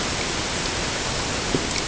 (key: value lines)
label: ambient
recorder: HydroMoth